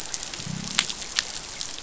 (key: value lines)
label: biophony, growl
recorder: SoundTrap 500